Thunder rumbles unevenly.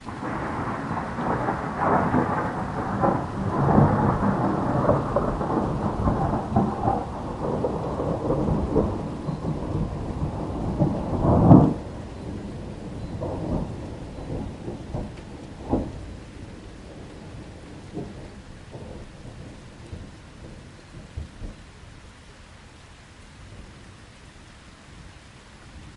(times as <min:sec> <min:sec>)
0:00.0 0:16.4